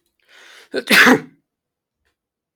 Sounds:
Sneeze